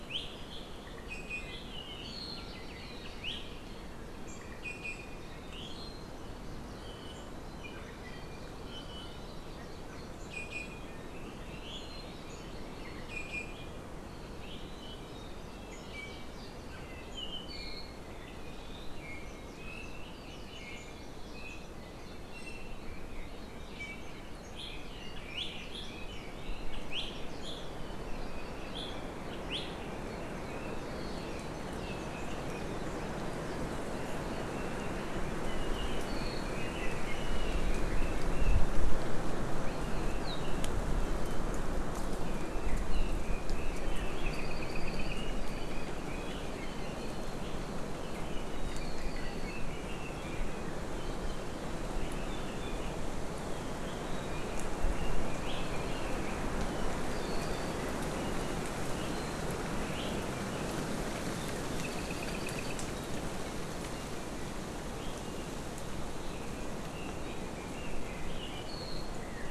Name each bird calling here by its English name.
Iiwi, Hawaii Amakihi, Red-billed Leiothrix, Apapane